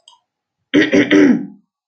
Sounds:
Throat clearing